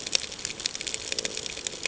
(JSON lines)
{"label": "ambient", "recorder": "HydroMoth"}